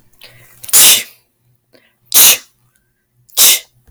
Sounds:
Sneeze